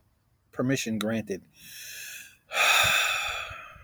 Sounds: Sigh